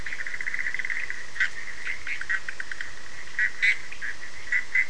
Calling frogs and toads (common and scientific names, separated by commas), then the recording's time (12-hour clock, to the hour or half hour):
Bischoff's tree frog (Boana bischoffi), Cochran's lime tree frog (Sphaenorhynchus surdus)
3am